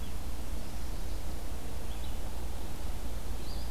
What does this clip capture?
Red-eyed Vireo